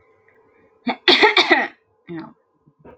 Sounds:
Throat clearing